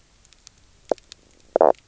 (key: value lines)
label: biophony, knock croak
recorder: SoundTrap 300